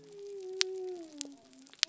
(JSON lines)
{"label": "biophony", "recorder": "SoundTrap 300"}